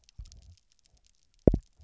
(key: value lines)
label: biophony, double pulse
recorder: SoundTrap 300